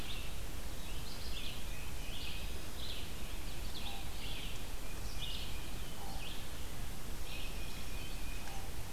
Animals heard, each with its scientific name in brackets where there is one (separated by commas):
Red-eyed Vireo (Vireo olivaceus), Black-throated Green Warbler (Setophaga virens), Common Raven (Corvus corax), Tufted Titmouse (Baeolophus bicolor)